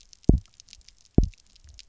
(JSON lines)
{"label": "biophony, double pulse", "recorder": "SoundTrap 300"}